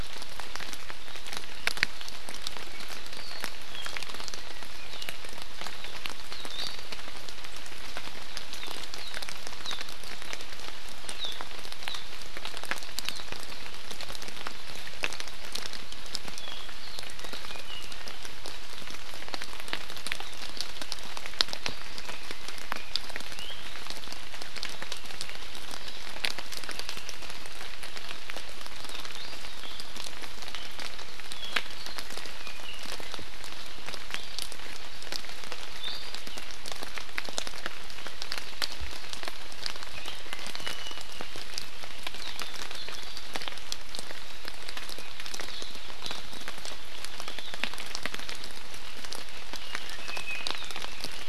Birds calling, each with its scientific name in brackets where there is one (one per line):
Iiwi (Drepanis coccinea)
Apapane (Himatione sanguinea)